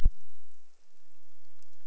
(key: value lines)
label: biophony
recorder: SoundTrap 300